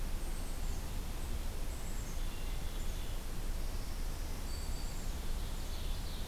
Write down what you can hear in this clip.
Black-capped Chickadee, Black-throated Green Warbler, Ovenbird